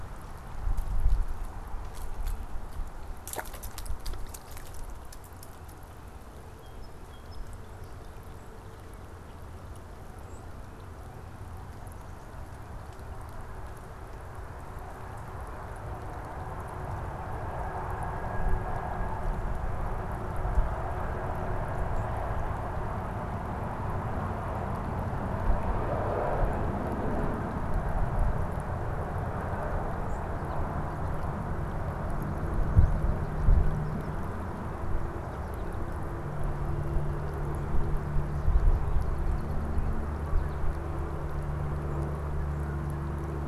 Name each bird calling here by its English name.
Song Sparrow, unidentified bird